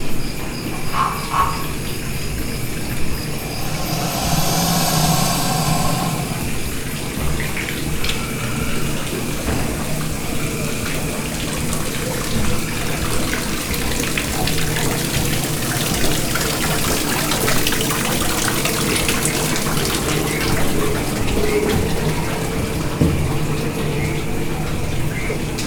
Is there water?
yes